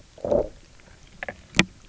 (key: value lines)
label: biophony, low growl
recorder: SoundTrap 300